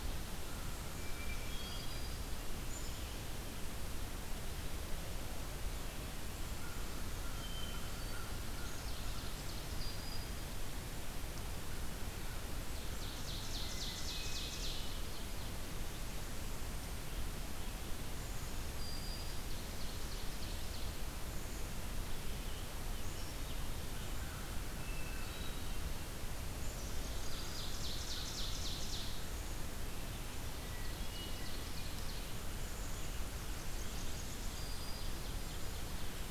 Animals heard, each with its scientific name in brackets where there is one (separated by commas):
Black-throated Green Warbler (Setophaga virens), Hermit Thrush (Catharus guttatus), Ovenbird (Seiurus aurocapilla), Scarlet Tanager (Piranga olivacea), American Crow (Corvus brachyrhynchos), Blackburnian Warbler (Setophaga fusca)